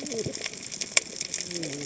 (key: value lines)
label: biophony, cascading saw
recorder: HydroMoth